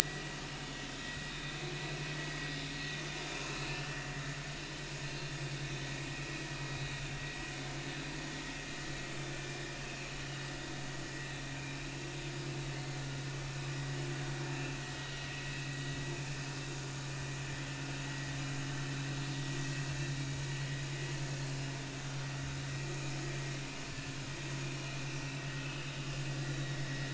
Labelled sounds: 0.0	0.4	vessel noise, 1.8 to 2.0 kHz
1.0	1.6	vessel noise, 1.8 to 3.8 kHz
5.0	5.3	vessel noise, 4.0 to 4.3 kHz
9.8	10.1	vessel noise, 2.5 to 2.8 kHz
14.5	14.8	vessel noise, 2.5 to 2.7 kHz
25.6	25.8	vessel noise, 2.5 to 2.7 kHz
26.5	26.8	vessel noise, 3.6 to 4.1 kHz

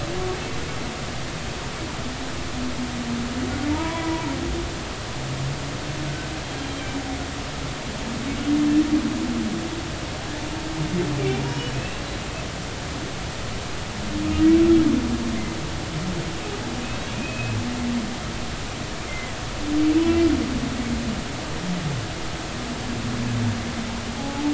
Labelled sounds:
3.7	4.3	humpback whale, 0.86 to 2.4 kHz
11.2	12.0	humpback whale, 2.2 to 5.5 kHz
17.1	17.6	humpback whale, 2.4 to 2.6 kHz
19.1	19.3	humpback whale, 1.9 to 2.2 kHz
24.2	24.4	humpback whale, 0.80 to 0.90 kHz

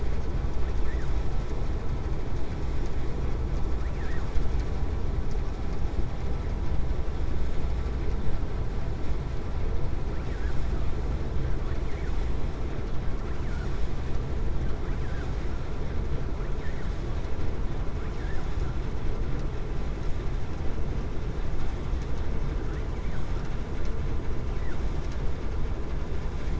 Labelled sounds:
3.8	4.3	vessel noise, 0.80 to 2.7 kHz
18.0	18.4	vessel noise, 0.75 to 2.7 kHz

